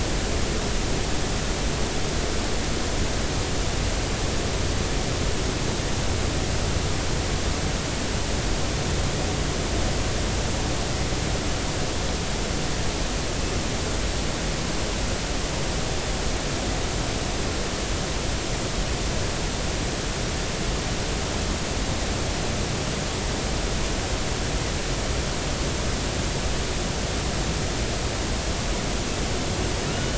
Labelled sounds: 29.9	30.1	killer whale, Bigg's (transient), 1.3 to 3.0 kHz

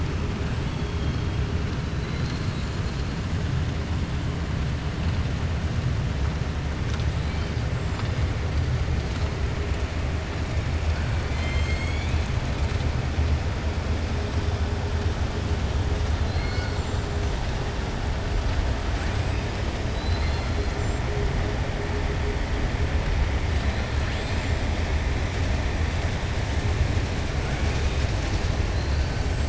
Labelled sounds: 11.2	12.3	killer whale, 1.7 to 5.2 kHz
19.9	20.5	killer whale, 2.1 to 4.9 kHz

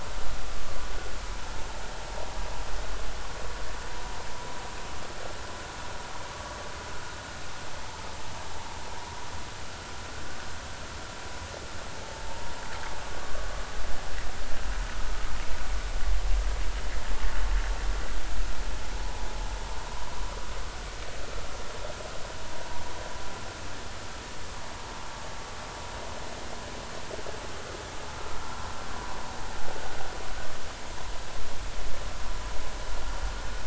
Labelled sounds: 12.1	12.5	vessel noise, 0.83 to 0.96 kHz

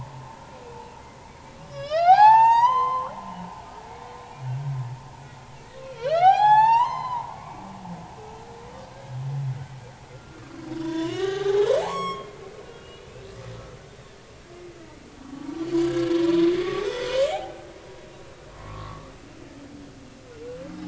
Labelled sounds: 0.3	0.6	humpback whale, 1.3 to 1.4 kHz
1.6	3.1	humpback whale, 0.80 to 7.7 kHz
5.9	7.7	humpback whale, 0.80 to 7.9 kHz
10.1	10.4	humpback whale, 1.3 to 1.4 kHz
10.8	12.3	humpback whale, 0.80 to 7.8 kHz
12.6	13.1	humpback whale, 1.3 to 3.0 kHz
15.9	17.6	humpback whale, 0.80 to 3.7 kHz
18.5	19.1	humpback whale, 0.99 to 1.3 kHz

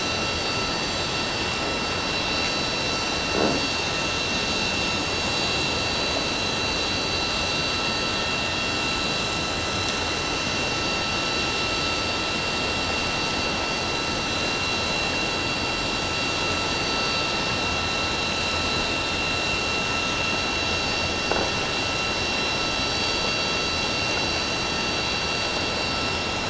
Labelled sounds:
25.9	26.1	vessel noise, 5.2 to 5.3 kHz

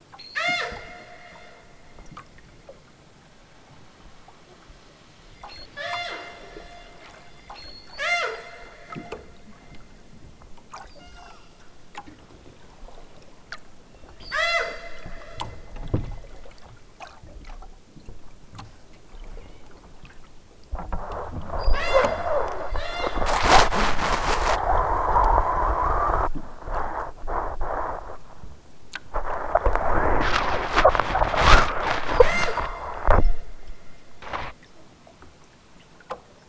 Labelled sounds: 0.1	0.9	killer whale, southern Alaska resident, 0.18 to 8.0 kHz
5.4	6.3	killer whale, southern Alaska resident, 0.23 to 8.0 kHz
7.6	8.7	killer whale, southern Alaska resident, 0.28 to 8.0 kHz
10.9	11.5	killer whale, southern Alaska resident, 0.46 to 8.0 kHz
14.2	15.4	killer whale, southern Alaska resident, 0.32 to 8.0 kHz
19.3	19.7	killer whale, southern Alaska resident, 1.5 to 4.7 kHz
21.5	22.4	killer whale, southern Alaska resident, 1.2 to 8.0 kHz
22.7	23.1	killer whale, southern Alaska resident, 1.1 to 8.0 kHz
32.2	32.6	killer whale, southern Alaska resident, 1.5 to 8.0 kHz

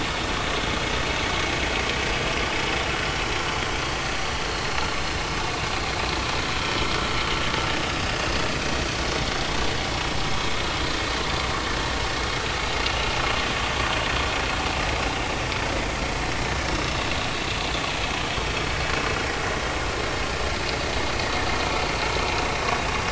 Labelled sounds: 7.9	8.3	vessel noise, 5.0 to 5.2 kHz
12.8	13.0	vessel noise, 2.7 to 2.9 kHz

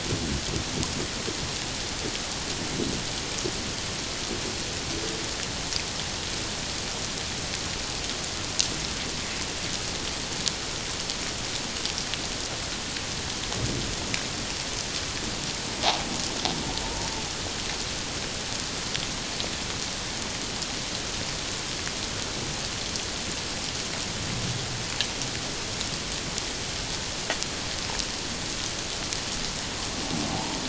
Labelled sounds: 30.3	30.6	humpback whale, 0.78 to 1.0 kHz

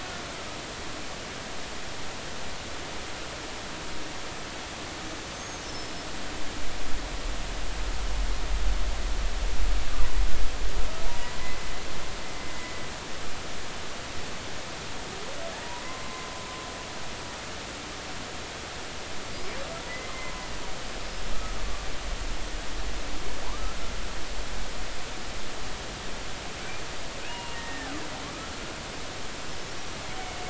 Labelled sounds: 5.3	6.1	killer whale, 5.2 to 6.6 kHz
11.1	11.3	humpback whale, 0.86 to 1.0 kHz
16.0	16.3	humpback whale, 0.99 to 1.1 kHz
20.1	20.5	humpback whale, 0.96 to 1.1 kHz
23.5	23.8	humpback whale, 0.83 to 1.4 kHz
27.3	27.9	killer whale, Bigg's (transient), 0.90 to 2.9 kHz

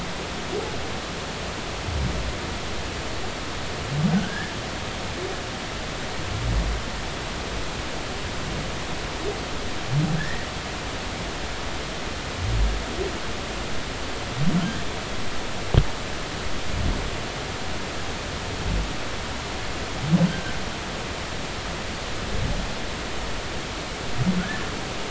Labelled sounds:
4.1	4.5	humpback whale, 1.4 to 1.8 kHz
10.2	10.5	humpback whale, 1.6 to 2.0 kHz
20.3	20.5	humpback whale, 1.5 to 1.7 kHz
24.4	24.7	humpback whale, 1.4 to 1.8 kHz

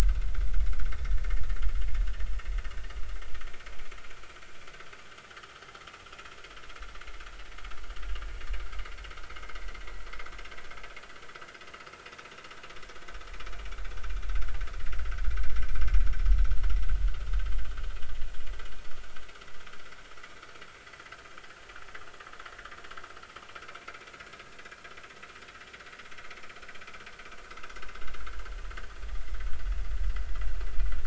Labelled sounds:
0.0	0.6	vessel noise, 1.2 to 1.6 kHz
26.3	26.5	vessel noise, 2.2 to 2.4 kHz

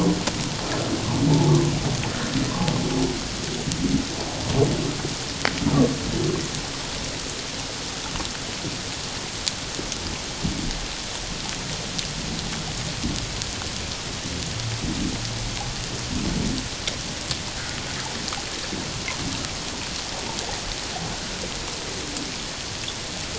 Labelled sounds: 1.3	1.6	humpback whale, 0.81 to 0.94 kHz

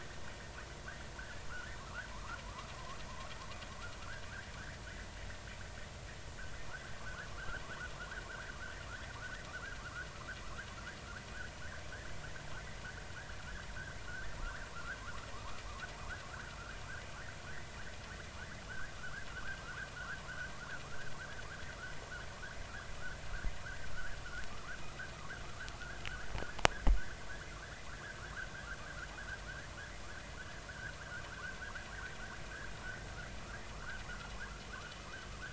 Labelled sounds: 1.2	1.4	vessel noise, 1.3 to 1.8 kHz
2.1	3.0	vessel noise, 0.90 to 1.5 kHz
4.0	4.3	vessel noise, 1.2 to 1.8 kHz
4.6	4.8	vessel noise, 1.4 to 2.0 kHz
7.0	7.3	vessel noise, 1.2 to 1.8 kHz
8.3	10.1	vessel noise, 0.93 to 2.0 kHz
10.4	10.7	vessel noise, 0.96 to 1.8 kHz
14.4	15.6	vessel noise, 0.86 to 1.9 kHz
16.3	16.6	vessel noise, 1.3 to 1.7 kHz
19.0	19.3	vessel noise, 1.1 to 1.8 kHz
19.6	20.2	vessel noise, 1.2 to 1.8 kHz
23.9	24.2	vessel noise, 1.2 to 1.8 kHz
26.1	26.3	vessel noise, 1.4 to 2.0 kHz
30.7	31.5	vessel noise, 1.3 to 1.8 kHz
33.7	34.0	vessel noise, 1.0 to 1.7 kHz

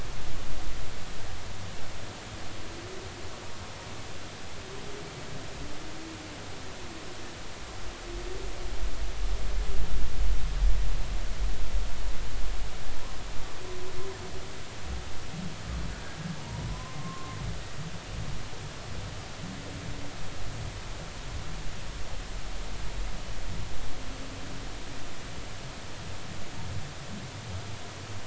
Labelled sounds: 16.4	17.4	humpback whale, 0.90 to 1.1 kHz

